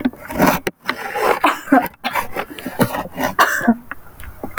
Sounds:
Cough